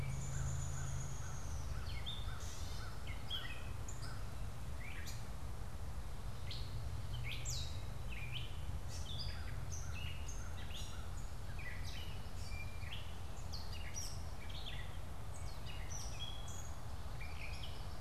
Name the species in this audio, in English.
Downy Woodpecker, Gray Catbird, American Crow